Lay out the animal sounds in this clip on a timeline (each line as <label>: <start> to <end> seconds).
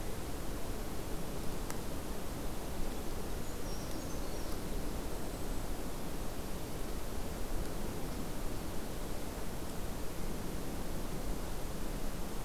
Brown Creeper (Certhia americana): 3.3 to 4.5 seconds
Blackpoll Warbler (Setophaga striata): 5.0 to 5.8 seconds